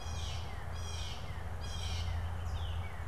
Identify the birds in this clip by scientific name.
Cyanocitta cristata, Cardinalis cardinalis, Colaptes auratus